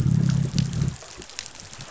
{"label": "biophony, growl", "recorder": "SoundTrap 500"}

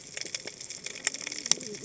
{"label": "biophony, cascading saw", "recorder": "HydroMoth"}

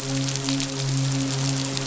{"label": "biophony, midshipman", "recorder": "SoundTrap 500"}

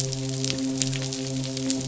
{"label": "biophony, midshipman", "recorder": "SoundTrap 500"}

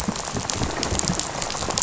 {"label": "biophony, rattle", "recorder": "SoundTrap 500"}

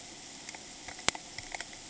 {"label": "ambient", "recorder": "HydroMoth"}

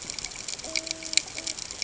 {"label": "ambient", "recorder": "HydroMoth"}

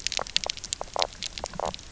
{"label": "biophony, knock croak", "recorder": "SoundTrap 300"}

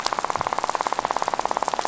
{"label": "biophony, rattle", "recorder": "SoundTrap 500"}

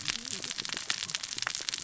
{"label": "biophony, cascading saw", "recorder": "SoundTrap 600 or HydroMoth"}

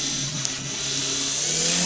{"label": "anthrophony, boat engine", "recorder": "SoundTrap 500"}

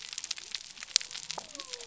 {"label": "biophony", "recorder": "SoundTrap 300"}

